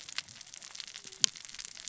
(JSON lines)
{"label": "biophony, cascading saw", "recorder": "SoundTrap 600 or HydroMoth"}